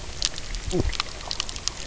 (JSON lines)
{"label": "biophony, knock croak", "recorder": "SoundTrap 300"}